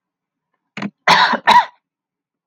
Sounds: Cough